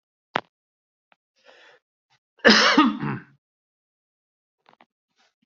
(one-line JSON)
{"expert_labels": [{"quality": "good", "cough_type": "wet", "dyspnea": false, "wheezing": false, "stridor": false, "choking": false, "congestion": false, "nothing": true, "diagnosis": "lower respiratory tract infection", "severity": "unknown"}], "age": 47, "gender": "male", "respiratory_condition": true, "fever_muscle_pain": false, "status": "symptomatic"}